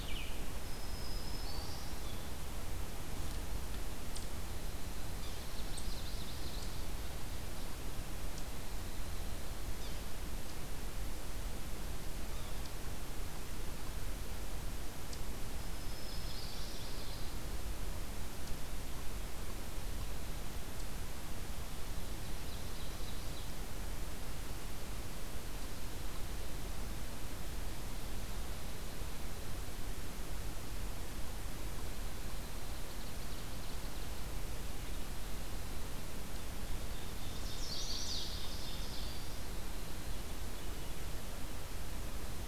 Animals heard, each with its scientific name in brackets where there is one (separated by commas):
Chestnut-sided Warbler (Setophaga pensylvanica), Ovenbird (Seiurus aurocapilla), Black-throated Green Warbler (Setophaga virens), Yellow-bellied Sapsucker (Sphyrapicus varius)